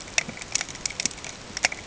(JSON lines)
{"label": "ambient", "recorder": "HydroMoth"}